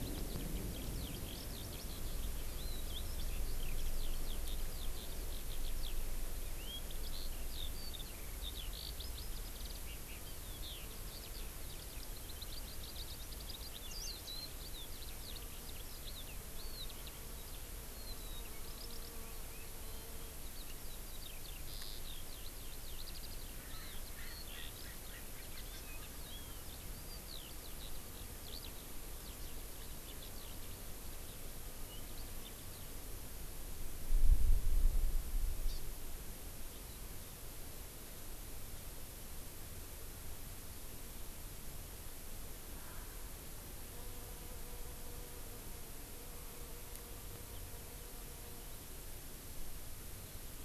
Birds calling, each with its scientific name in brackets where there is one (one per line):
Hawaii Amakihi (Chlorodrepanis virens)
Eurasian Skylark (Alauda arvensis)
Erckel's Francolin (Pternistis erckelii)